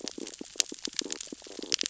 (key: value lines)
label: biophony, stridulation
recorder: SoundTrap 600 or HydroMoth